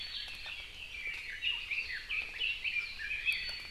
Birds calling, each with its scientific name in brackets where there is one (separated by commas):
Iiwi (Drepanis coccinea), Red-billed Leiothrix (Leiothrix lutea)